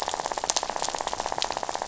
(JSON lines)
{"label": "biophony, rattle", "recorder": "SoundTrap 500"}